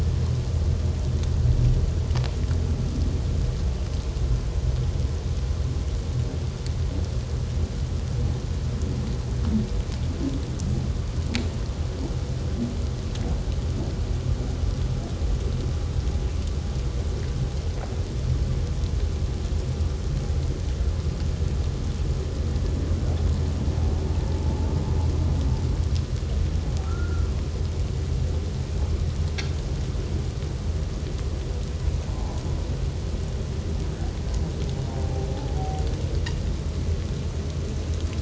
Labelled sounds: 24.4	24.7	humpback whale, 0.78 to 0.94 kHz
26.8	27.3	humpback whale, 1.2 to 1.5 kHz

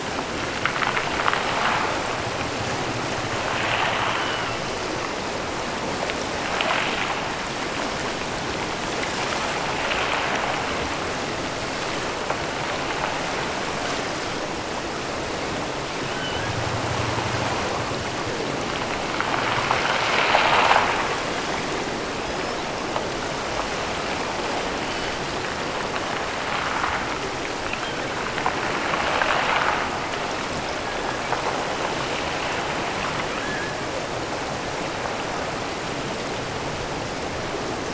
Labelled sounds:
4.0	4.6	killer whale, offshore, 1.1 to 3.3 kHz
15.9	16.6	killer whale, offshore, 1.2 to 3.4 kHz
22.1	22.9	killer whale, offshore, 2.9 to 5.7 kHz
27.6	28.2	killer whale, offshore, 2.2 to 3.3 kHz
30.8	31.5	killer whale, offshore, 1.4 to 2.7 kHz
33.3	34.0	killer whale, offshore, 1.2 to 1.8 kHz

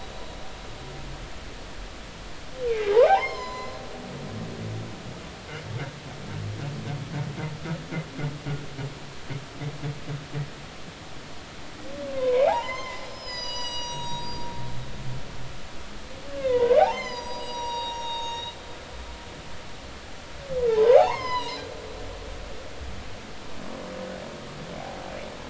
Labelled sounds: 2.7	3.8	humpback whale, 0.80 to 7.2 kHz
12.1	14.5	humpback whale, 0.80 to 7.9 kHz
16.4	18.5	humpback whale, 0.80 to 7.4 kHz
20.7	21.7	humpback whale, 0.80 to 6.6 kHz

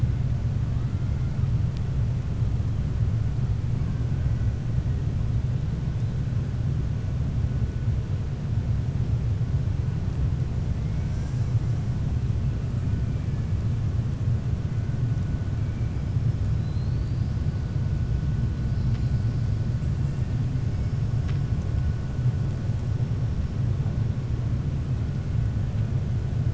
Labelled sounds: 10.8	11.3	killer whale, 0.64 to 2.5 kHz
16.5	17.3	killer whale, 3.9 to 5.3 kHz

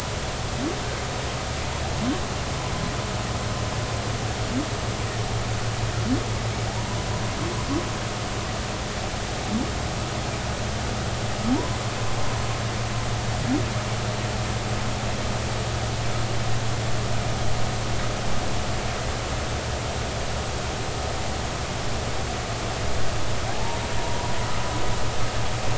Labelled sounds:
6.7	7.0	humpback whale, 0.80 to 1.0 kHz
11.5	11.8	humpback whale, 0.80 to 1.1 kHz
23.5	24.3	humpback whale, 0.83 to 1.0 kHz

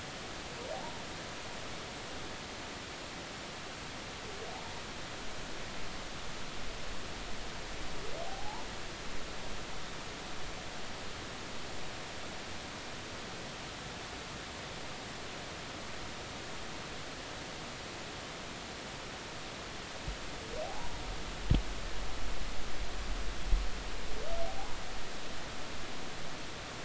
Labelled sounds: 8.2	8.7	humpback whale, 0.80 to 1.0 kHz
20.6	20.9	humpback whale, 0.80 to 1.0 kHz

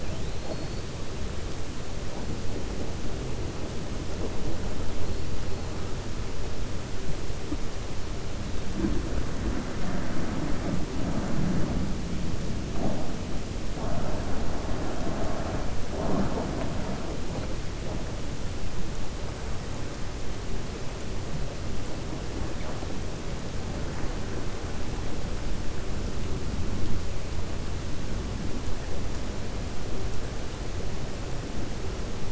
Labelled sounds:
0.0	0.9	killer whale, 2.4 to 5.0 kHz

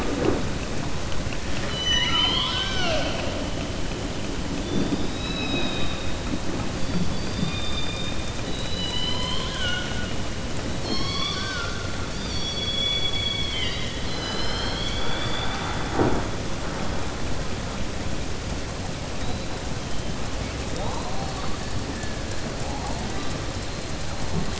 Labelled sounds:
1.5	3.3	killer whale, southern resident, 0.68 to 6.1 kHz
8.4	10.1	killer whale, southern resident, 0.99 to 6.0 kHz

